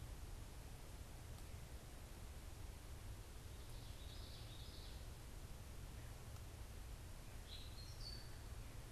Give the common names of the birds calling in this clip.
Common Yellowthroat, Gray Catbird